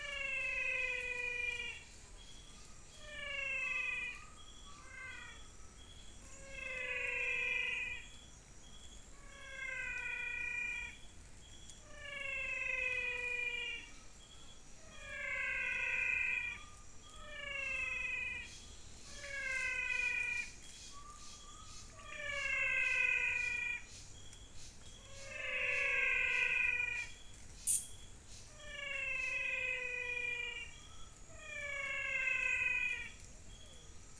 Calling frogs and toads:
Physalaemus albonotatus (Leptodactylidae)
Cerrado, Brazil, 5:45pm

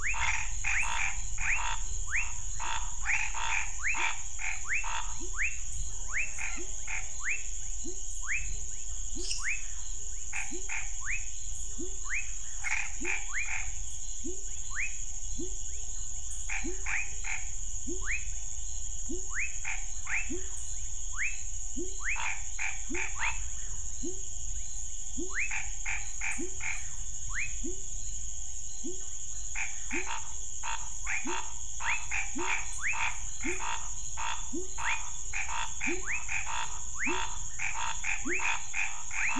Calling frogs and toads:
Scinax fuscovarius (Hylidae), Leptodactylus fuscus (Leptodactylidae), Boana raniceps (Hylidae), Leptodactylus labyrinthicus (Leptodactylidae), Physalaemus albonotatus (Leptodactylidae), Dendropsophus minutus (Hylidae)
Cerrado, Brazil, 9:00pm

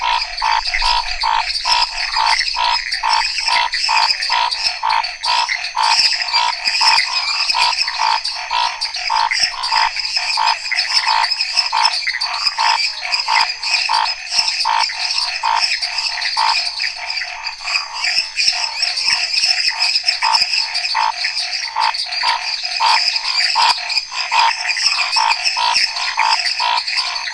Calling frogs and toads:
Pithecopus azureus (Hylidae), Boana raniceps (Hylidae), Dendropsophus minutus (Hylidae), Dendropsophus nanus (Hylidae), Scinax fuscovarius (Hylidae), Phyllomedusa sauvagii (Hylidae), Physalaemus albonotatus (Leptodactylidae)
Cerrado, Brazil, 9:00pm

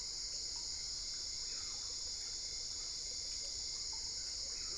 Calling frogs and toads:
none
Cerrado, Brazil, 12:15am

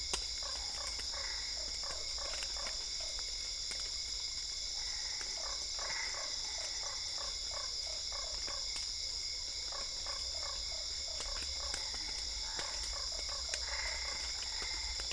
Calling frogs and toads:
Boana lundii (Hylidae), Boana albopunctata (Hylidae)
Cerrado, Brazil, 9:30pm

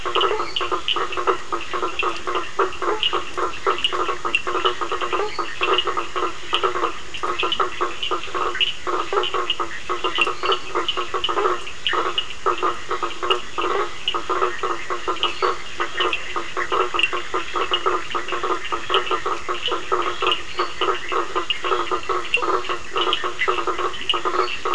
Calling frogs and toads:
Boana faber (Hylidae), Sphaenorhynchus surdus (Hylidae), Dendropsophus minutus (Hylidae), Leptodactylus latrans (Leptodactylidae)
Atlantic Forest, Brazil, 9:15pm

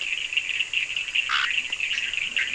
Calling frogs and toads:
Leptodactylus latrans (Leptodactylidae), Scinax perereca (Hylidae)
Atlantic Forest, Brazil, 3:30am

